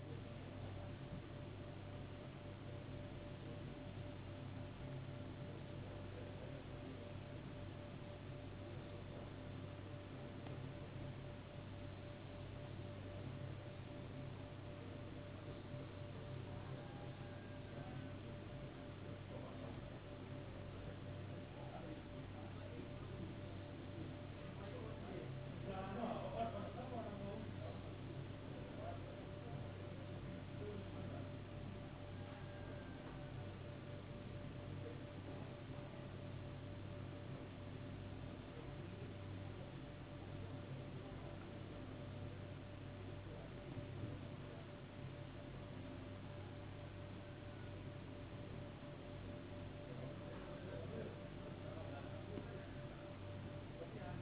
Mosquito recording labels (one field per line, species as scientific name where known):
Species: no mosquito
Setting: insect culture